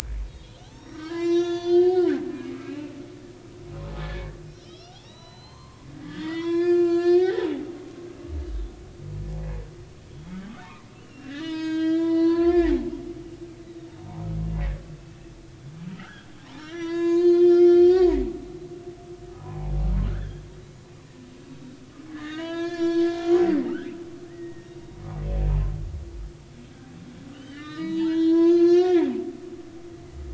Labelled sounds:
0.3	2.7	humpback whale, 0.96 to 7.4 kHz
4.0	7.6	humpback whale, 0.80 to 7.7 kHz
10.1	10.4	humpback whale, 3.3 to 3.4 kHz
10.9	12.9	humpback whale, 0.80 to 6.5 kHz
13.6	13.9	humpback whale, 3.6 to 4.0 kHz
15.9	18.2	humpback whale, 0.93 to 7.4 kHz
19.4	20.4	humpback whale, 0.80 to 3.5 kHz
22.1	23.7	humpback whale, 0.93 to 6.7 kHz
24.3	24.8	humpback whale, 1.7 to 2.0 kHz
27.3	29.1	humpback whale, 0.83 to 6.6 kHz

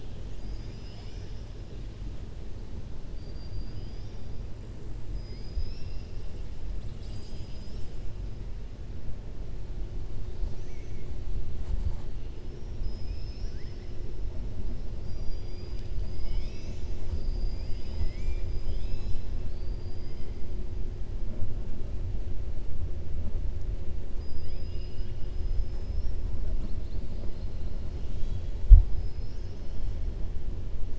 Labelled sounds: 0.2	1.5	killer whale, southern resident, 1.6 to 7.3 kHz
3.1	4.2	killer whale, southern resident, 3.0 to 6.1 kHz
10.5	11.1	killer whale, southern resident, 1.7 to 2.7 kHz
12.5	13.9	killer whale, southern resident, 1.5 to 6.2 kHz
15.0	15.9	killer whale, southern resident, 4.8 to 5.8 kHz
19.4	20.3	killer whale, southern resident, 4.2 to 5.0 kHz
24.1	26.2	killer whale, southern resident, 2.0 to 5.7 kHz

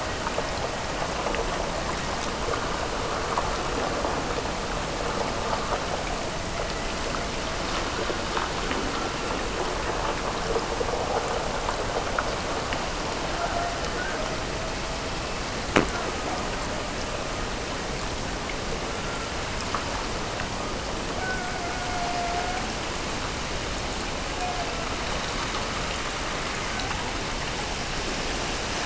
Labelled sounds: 6.0	7.5	killer whale, Bigg's (transient), Gulf of Alaska transient, 0.41 to 1.2 kHz
13.3	14.9	killer whale, Bigg's (transient), Gulf of Alaska transient, 0.50 to 2.0 kHz
15.8	17.5	killer whale, Bigg's (transient), Gulf of Alaska transient, 0.29 to 1.9 kHz
21.0	22.7	killer whale, Bigg's (transient), Gulf of Alaska transient, 0.50 to 2.5 kHz

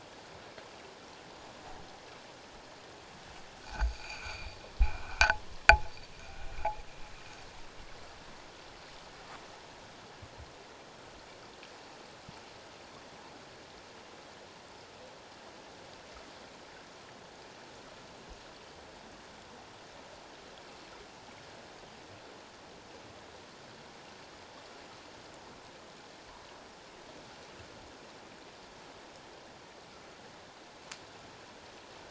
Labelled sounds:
3.8	4.6	rubbing on or near the hydrophone, 2.2 to 4.8 kHz

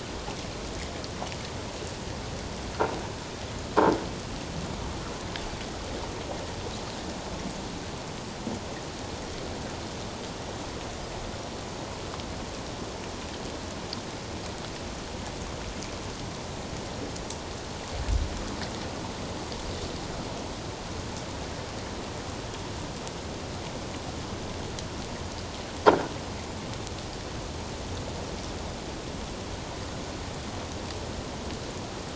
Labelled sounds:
25.9	26.1	croaking sound likely from a nearby submerged object, 1.3 to 1.7 kHz

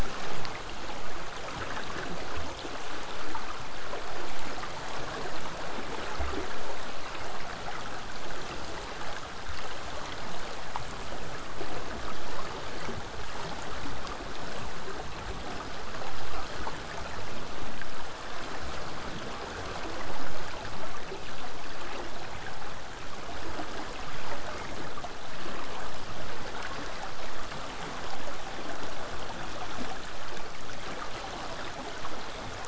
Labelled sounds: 0.1	1.4	killer whale, southern resident, J pod, 7.3 to 8.0 kHz
5.0	10.0	vessel noise, 0 to 8.0 kHz

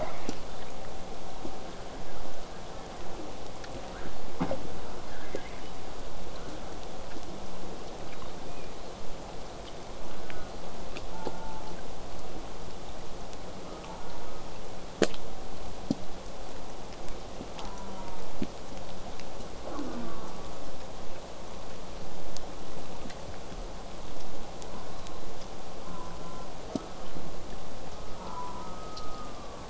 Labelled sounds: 0.0	0.6	killer whale, southern resident, J pod, 0.12 to 5.0 kHz
2.0	3.3	killer whale, southern resident, J pod, 0.19 to 1.9 kHz
3.6	4.1	killer whale, southern resident, J pod, 0.12 to 2.0 kHz
6.3	6.8	killer whale, southern resident, J pod, 0.23 to 1.9 kHz
8.1	9.1	killer whale, southern resident, J pod, whistle, 2.2 to 4.3 kHz
10.0	10.6	killer whale, southern resident, J pod, call S04, 1.1 to 1.7 kHz
11.1	11.8	killer whale, southern resident, J pod, call S04, 0.71 to 1.5 kHz
13.7	14.5	killer whale, southern resident, J pod, call S04, 0.36 to 1.5 kHz
17.6	18.4	killer whale, southern resident, J pod, call S04, 0.78 to 1.7 kHz
19.7	20.6	killer whale, southern resident, J pod, call S04, 0.13 to 1.6 kHz
24.7	25.3	killer whale, southern resident, J pod, call S04, 0.84 to 1.5 kHz
25.8	26.9	killer whale, southern resident, J pod, call S04, 0.31 to 1.5 kHz
27.9	28.7	killer whale, southern resident, J pod, call S04, 0.84 to 1.4 kHz
28.6	29.6	killer whale, southern resident, J pod, 1.1 to 1.4 kHz

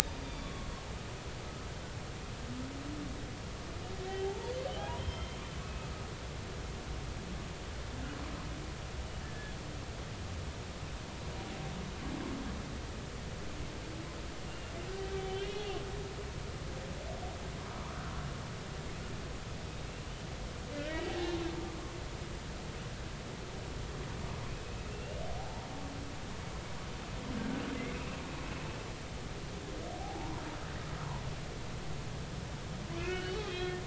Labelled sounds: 0.2	0.7	humpback whale, 1.1 to 3.6 kHz
4.1	5.9	humpback whale, 0.80 to 3.4 kHz
9.2	9.5	humpback whale, 1.7 to 1.8 kHz
14.5	15.7	humpback whale, 2.3 to 3.4 kHz
17.7	18.0	humpback whale, 0.93 to 1.3 kHz
20.9	21.3	humpback whale, 0.80 to 2.0 kHz
24.6	25.7	humpback whale, 0.80 to 2.9 kHz
30.0	30.4	humpback whale, 0.80 to 1.1 kHz
33.0	33.8	humpback whale, 1.3 to 3.4 kHz

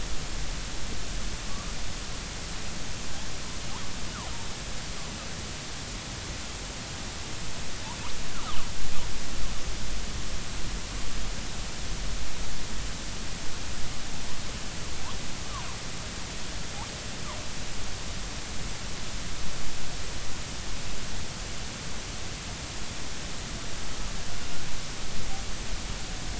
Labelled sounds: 8.3	8.6	killer whale, northern resident, G clan, 0.96 to 1.5 kHz

